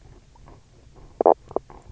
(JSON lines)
{"label": "biophony, knock croak", "recorder": "SoundTrap 300"}